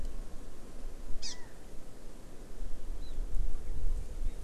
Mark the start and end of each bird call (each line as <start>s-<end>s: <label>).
1.2s-1.4s: Hawaii Amakihi (Chlorodrepanis virens)
1.2s-1.6s: Chinese Hwamei (Garrulax canorus)
3.0s-3.2s: Hawaii Amakihi (Chlorodrepanis virens)